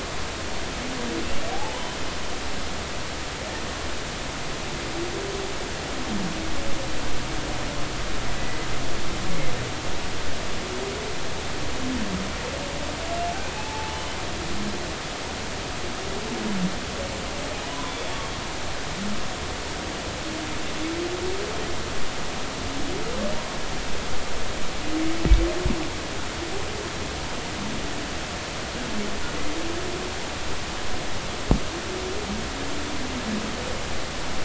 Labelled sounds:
1.5	2.0	humpback whale, 0.80 to 1.1 kHz
8.3	8.7	humpback whale, 1.9 to 2.0 kHz
13.6	14.2	humpback whale, 0.80 to 3.1 kHz
17.7	18.1	humpback whale, 0.93 to 3.6 kHz

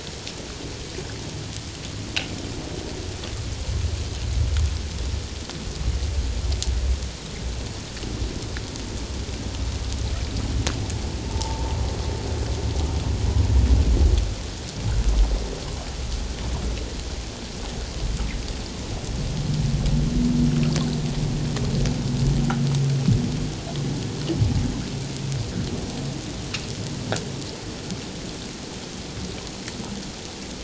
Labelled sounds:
11.2	11.8	humpback whale, 0.84 to 0.97 kHz

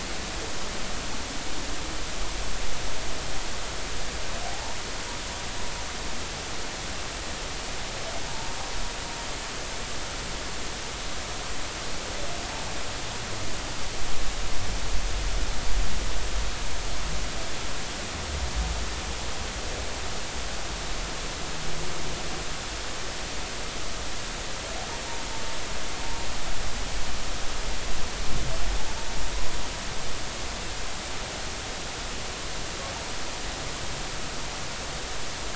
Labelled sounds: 4.4	4.8	humpback whale, 0.80 to 0.99 kHz
8.3	8.6	humpback whale, 0.83 to 0.96 kHz

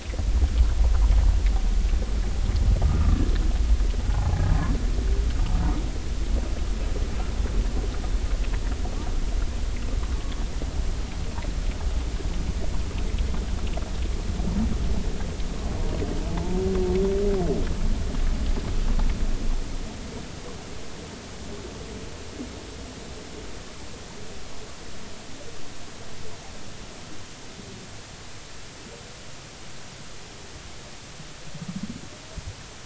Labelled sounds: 2.8	3.2	humpback whale, 1.1 to 1.4 kHz
10.1	10.3	humpback whale, 1.1 to 1.2 kHz
16.3	16.6	humpback whale, 0.80 to 1.1 kHz

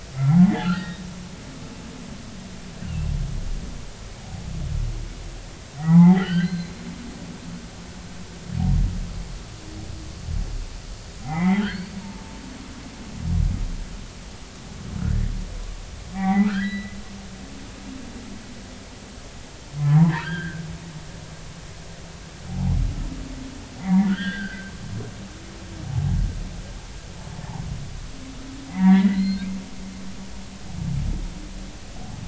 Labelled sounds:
0.1	1.1	humpback whale, 0.80 to 3.8 kHz
2.8	3.1	humpback whale, 2.6 to 2.9 kHz
5.8	6.7	humpback whale, 0.80 to 4.3 kHz
11.2	11.9	humpback whale, 0.80 to 4.6 kHz
15.0	15.3	humpback whale, 1.3 to 2.2 kHz
16.1	17.0	humpback whale, 0.80 to 4.0 kHz
19.8	20.6	humpback whale, 0.80 to 3.4 kHz
22.5	22.8	humpback whale, 0.80 to 0.96 kHz
23.8	24.7	humpback whale, 1.3 to 3.6 kHz
25.8	26.2	humpback whale, 0.80 to 0.93 kHz
28.7	29.5	humpback whale, 0.86 to 4.4 kHz

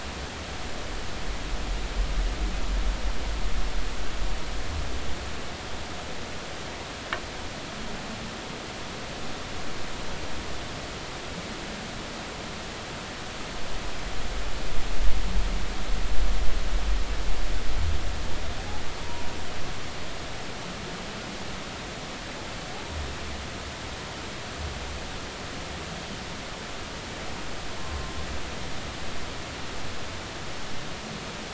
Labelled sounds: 27.8	28.1	humpback whale, 0.99 to 1.2 kHz

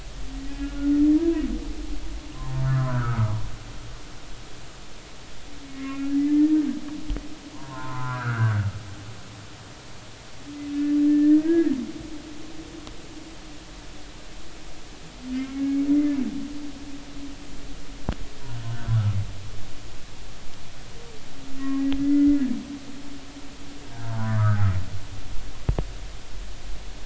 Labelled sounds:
0.5	1.9	humpback whale, 0.90 to 1.7 kHz
2.3	3.4	humpback whale, 0.90 to 1.6 kHz
5.7	6.6	humpback whale, 1.0 to 2.3 kHz
7.5	8.6	humpback whale, 0.86 to 1.8 kHz
11.1	11.7	humpback whale, 1.6 to 2.0 kHz
15.5	16.2	humpback whale, 2.0 to 2.3 kHz
18.6	19.2	humpback whale, 1.2 to 1.6 kHz
21.6	22.4	humpback whale, 1.0 to 2.1 kHz
23.9	24.6	humpback whale, 0.93 to 1.7 kHz

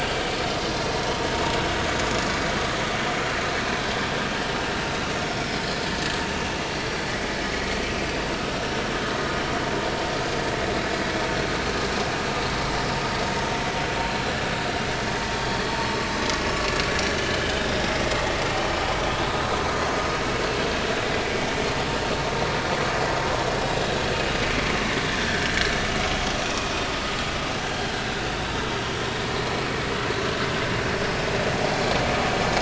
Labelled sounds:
26.4	26.7	vessel noise, 2.4 to 2.6 kHz
27.6	27.9	vessel noise, 1.5 to 1.7 kHz

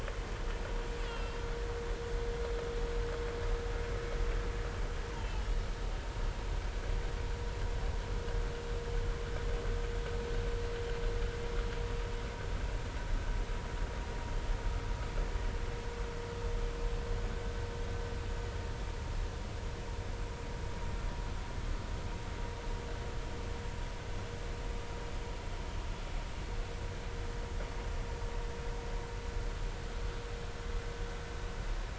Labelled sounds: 1.1	1.4	killer whale, Bigg's (transient), 2.6 to 5.1 kHz
5.2	5.4	killer whale, Bigg's (transient), 2.9 to 3.3 kHz

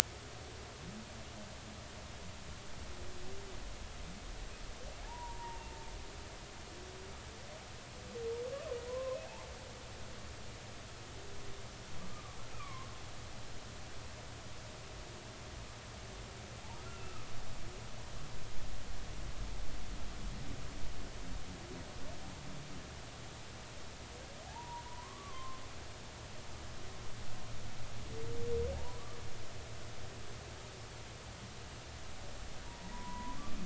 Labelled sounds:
5.0	5.6	humpback whale, 0.80 to 1.0 kHz
8.9	9.2	humpback whale, 0.96 to 1.1 kHz
12.1	12.9	humpback whale, 0.99 to 2.6 kHz
17.0	17.3	humpback whale, 1.1 to 1.4 kHz
24.5	25.6	humpback whale, 0.80 to 1.2 kHz
28.7	29.0	humpback whale, 0.80 to 1.0 kHz
32.7	33.4	humpback whale, 0.90 to 1.1 kHz

